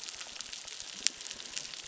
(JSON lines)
{"label": "biophony, crackle", "recorder": "SoundTrap 600"}